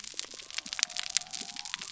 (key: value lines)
label: biophony
recorder: SoundTrap 300